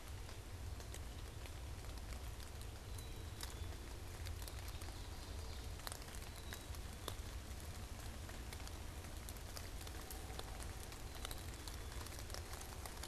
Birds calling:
Black-capped Chickadee (Poecile atricapillus), Ovenbird (Seiurus aurocapilla)

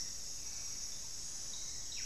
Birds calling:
Hauxwell's Thrush (Turdus hauxwelli), Buff-breasted Wren (Cantorchilus leucotis)

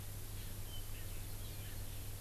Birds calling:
Erckel's Francolin (Pternistis erckelii)

